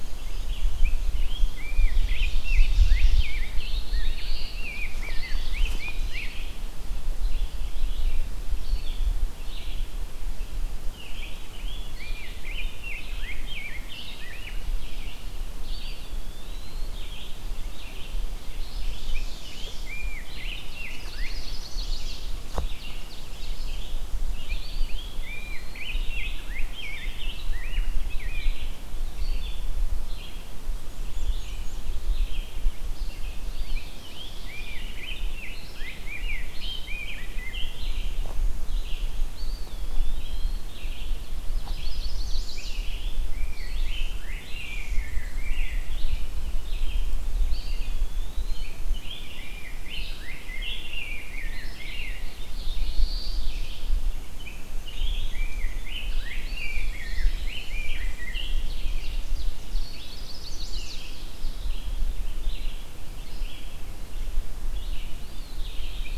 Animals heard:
Chestnut-sided Warbler (Setophaga pensylvanica), Red-eyed Vireo (Vireo olivaceus), Eastern Wood-Pewee (Contopus virens), Ovenbird (Seiurus aurocapilla), Rose-breasted Grosbeak (Pheucticus ludovicianus), Black-throated Blue Warbler (Setophaga caerulescens), Black-and-white Warbler (Mniotilta varia)

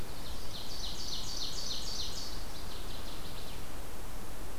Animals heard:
Ovenbird (Seiurus aurocapilla), Northern Waterthrush (Parkesia noveboracensis)

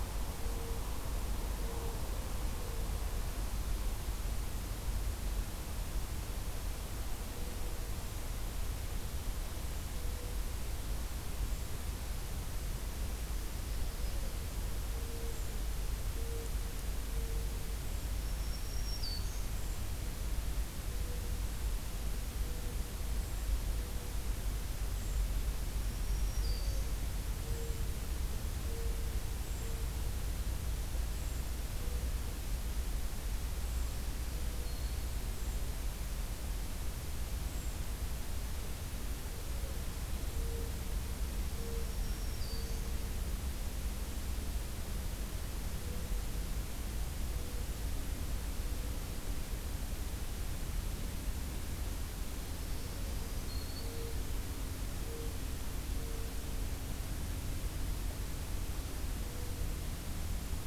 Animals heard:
Brown Creeper (Certhia americana), Black-throated Green Warbler (Setophaga virens)

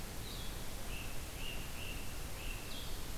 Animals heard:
Great Crested Flycatcher (Myiarchus crinitus), Blue-headed Vireo (Vireo solitarius)

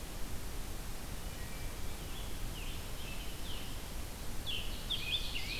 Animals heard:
Scarlet Tanager (Piranga olivacea), Ovenbird (Seiurus aurocapilla), Wood Thrush (Hylocichla mustelina)

